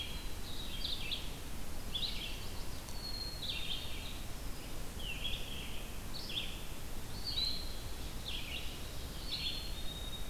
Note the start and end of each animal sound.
[0.00, 10.30] Red-eyed Vireo (Vireo olivaceus)
[1.78, 3.11] Chestnut-sided Warbler (Setophaga pensylvanica)
[2.76, 3.73] Black-capped Chickadee (Poecile atricapillus)
[9.04, 10.30] Black-capped Chickadee (Poecile atricapillus)

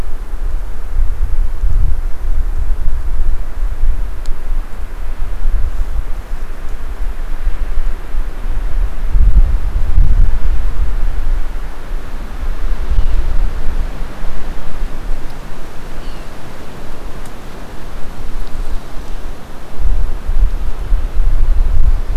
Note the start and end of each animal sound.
[12.83, 13.35] Blue Jay (Cyanocitta cristata)
[15.87, 16.35] Blue Jay (Cyanocitta cristata)

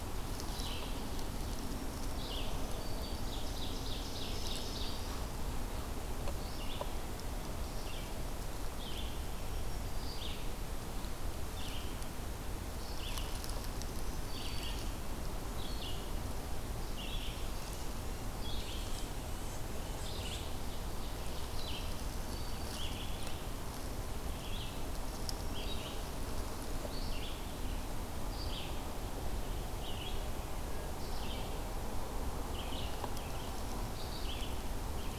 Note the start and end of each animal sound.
[0.00, 35.19] Red-eyed Vireo (Vireo olivaceus)
[1.46, 2.87] Black-throated Green Warbler (Setophaga virens)
[2.81, 5.29] Ovenbird (Seiurus aurocapilla)
[9.12, 10.26] Black-throated Green Warbler (Setophaga virens)
[13.46, 14.93] Black-throated Green Warbler (Setophaga virens)
[16.66, 17.70] Black-throated Green Warbler (Setophaga virens)
[21.41, 22.96] Black-throated Green Warbler (Setophaga virens)
[25.08, 25.98] Black-throated Green Warbler (Setophaga virens)

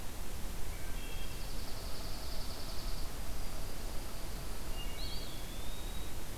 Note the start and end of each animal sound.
[0.35, 1.75] Wood Thrush (Hylocichla mustelina)
[0.98, 3.12] Dark-eyed Junco (Junco hyemalis)
[4.75, 6.28] Eastern Wood-Pewee (Contopus virens)
[4.79, 5.40] Wood Thrush (Hylocichla mustelina)

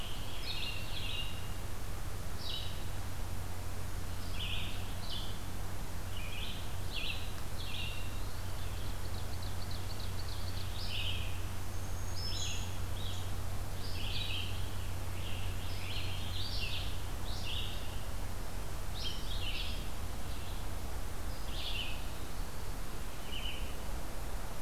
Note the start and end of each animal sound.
[0.00, 0.97] Scarlet Tanager (Piranga olivacea)
[0.00, 24.61] Red-eyed Vireo (Vireo olivaceus)
[7.99, 8.62] Eastern Wood-Pewee (Contopus virens)
[8.54, 10.63] Ovenbird (Seiurus aurocapilla)
[11.31, 12.78] Black-throated Green Warbler (Setophaga virens)
[14.52, 16.53] Scarlet Tanager (Piranga olivacea)
[21.83, 22.75] Eastern Wood-Pewee (Contopus virens)

